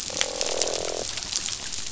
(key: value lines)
label: biophony, croak
recorder: SoundTrap 500